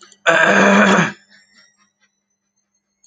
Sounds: Throat clearing